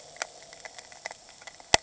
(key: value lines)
label: anthrophony, boat engine
recorder: HydroMoth